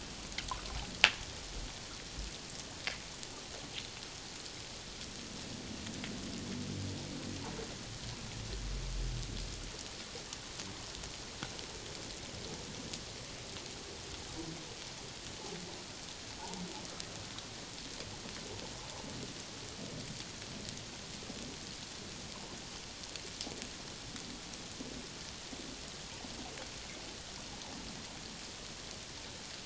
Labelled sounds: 16.4	16.6	humpback whale, 0.78 to 1.0 kHz

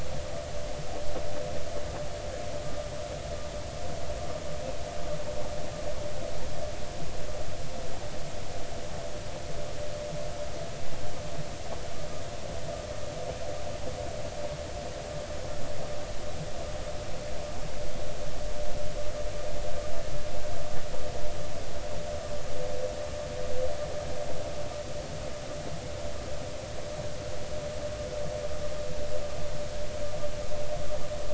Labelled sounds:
2.6	2.9	vessel noise, 1.15 to 1.25 kHz

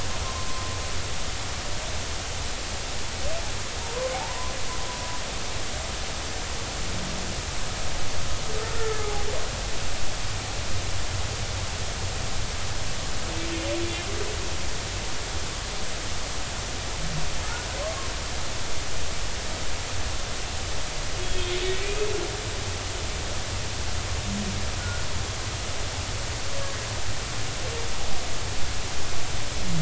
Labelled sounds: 4.1	4.5	humpback whale, 0.80 to 1.2 kHz
8.7	9.2	humpback whale, 0.80 to 1.9 kHz
17.8	18.1	humpback whale, 1.0 to 1.2 kHz
21.2	21.5	humpback whale, 3.2 to 3.4 kHz
21.8	22.1	humpback whale, 2.4 to 2.6 kHz
24.8	25.0	humpback whale, 1.4 to 1.5 kHz

